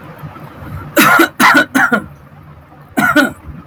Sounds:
Throat clearing